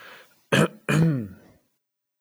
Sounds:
Throat clearing